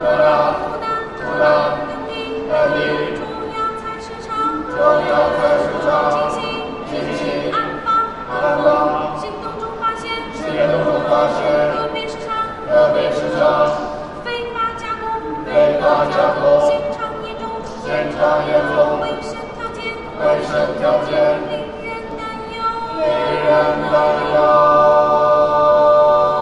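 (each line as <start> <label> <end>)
0.0 A Chinese vocal group performs harmoniously with a blend of spoken word, choral call-and-response, and melodic singing in Mandarin by female voices, creating a powerful and artistic contemporary soundscape. 26.4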